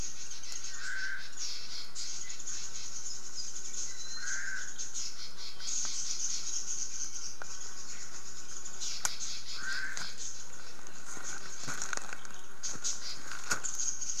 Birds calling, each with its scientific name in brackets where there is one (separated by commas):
Omao (Myadestes obscurus), Red-billed Leiothrix (Leiothrix lutea)